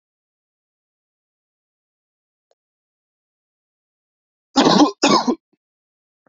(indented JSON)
{
  "expert_labels": [
    {
      "quality": "ok",
      "cough_type": "dry",
      "dyspnea": false,
      "wheezing": false,
      "stridor": false,
      "choking": false,
      "congestion": false,
      "nothing": true,
      "diagnosis": "healthy cough",
      "severity": "pseudocough/healthy cough"
    }
  ],
  "age": 25,
  "gender": "male",
  "respiratory_condition": false,
  "fever_muscle_pain": false,
  "status": "symptomatic"
}